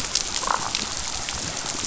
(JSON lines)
{"label": "biophony, damselfish", "recorder": "SoundTrap 500"}